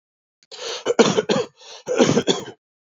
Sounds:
Cough